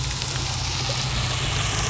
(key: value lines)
label: biophony
recorder: SoundTrap 300